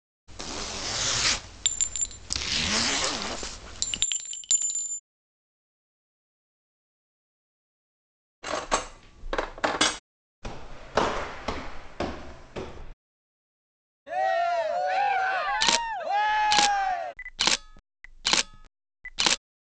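First at 0.27 seconds, a zipper can be heard. While that goes on, at 1.64 seconds, chinking is audible. Then at 8.42 seconds, you can hear cutlery. Afterwards, at 10.42 seconds, someone walks. Later, at 14.06 seconds, people cheer. Over it, at 15.46 seconds, there is the sound of a camera.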